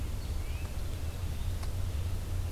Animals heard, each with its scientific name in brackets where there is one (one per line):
Red-eyed Vireo (Vireo olivaceus)
Yellow-bellied Flycatcher (Empidonax flaviventris)